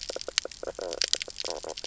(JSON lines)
{"label": "biophony, knock croak", "recorder": "SoundTrap 300"}